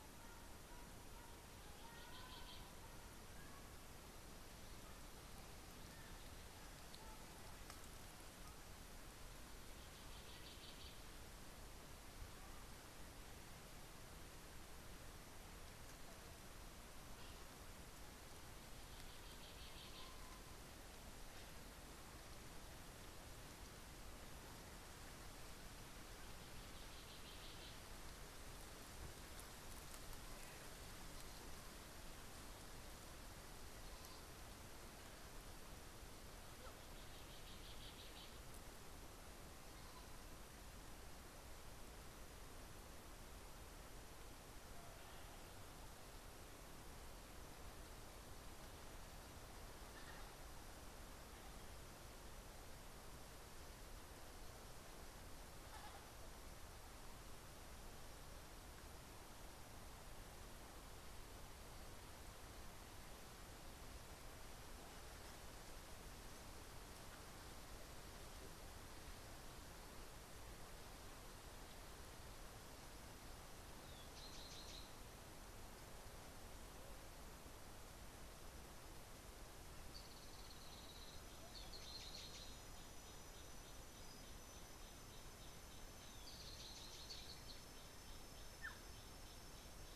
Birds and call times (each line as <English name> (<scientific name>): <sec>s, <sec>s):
Cinnamon Bracken-Warbler (Bradypterus cinnamomeus): 19.6s, 74.6s, 82.2s
Gray Apalis (Apalis cinerea): 80.5s
Black-tailed Oriole (Oriolus percivali): 88.7s